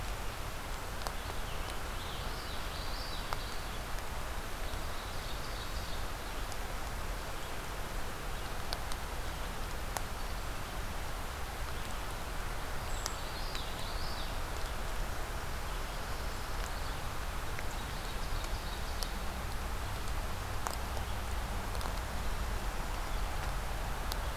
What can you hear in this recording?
Common Yellowthroat, Ovenbird, Brown Creeper